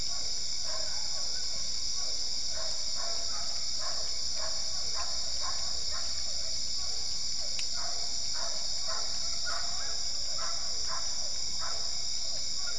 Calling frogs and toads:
Physalaemus cuvieri
Cerrado, 9:00pm

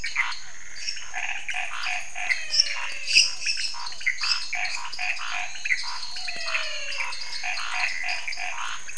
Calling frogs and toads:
Physalaemus cuvieri, Dendropsophus minutus, Scinax fuscovarius, Boana raniceps, Dendropsophus nanus, Leptodactylus podicipinus, Physalaemus albonotatus, Elachistocleis matogrosso
Cerrado, 11:15pm

